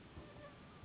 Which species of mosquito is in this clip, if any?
Anopheles gambiae s.s.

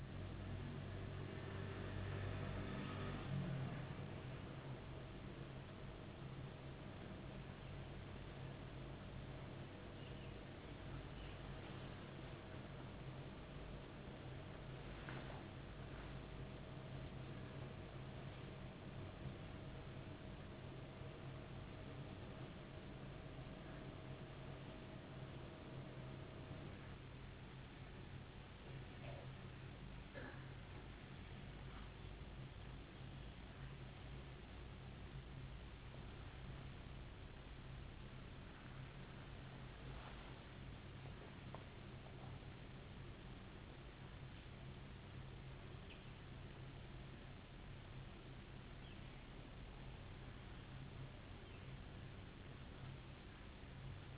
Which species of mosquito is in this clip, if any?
no mosquito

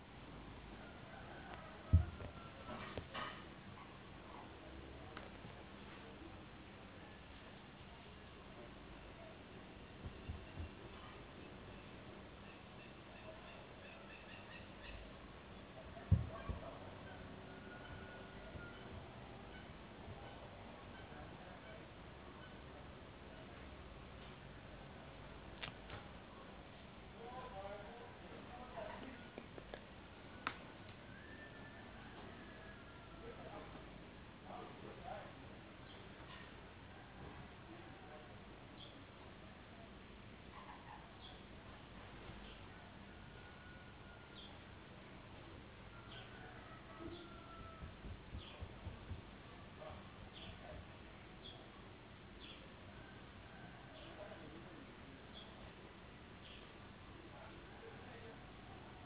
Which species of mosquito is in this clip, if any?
no mosquito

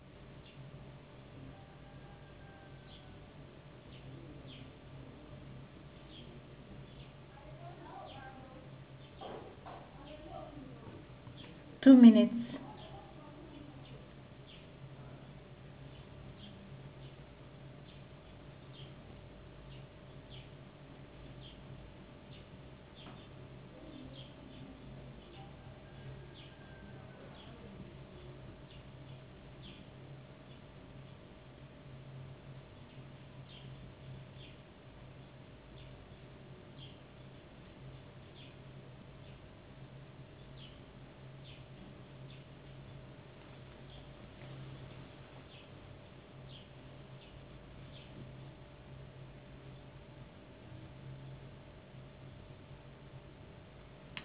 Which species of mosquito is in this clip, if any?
no mosquito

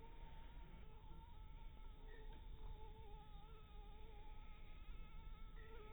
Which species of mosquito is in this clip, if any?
Anopheles dirus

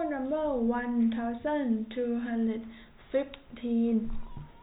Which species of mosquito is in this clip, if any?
no mosquito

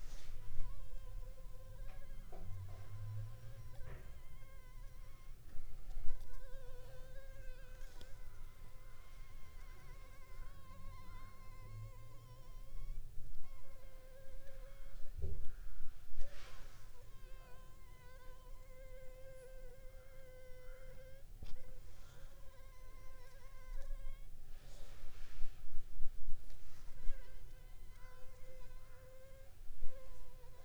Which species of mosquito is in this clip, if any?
Anopheles funestus s.s.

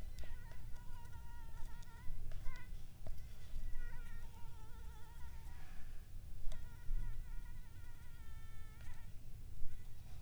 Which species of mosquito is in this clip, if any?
Anopheles arabiensis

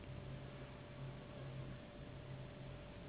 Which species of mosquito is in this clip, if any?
Anopheles gambiae s.s.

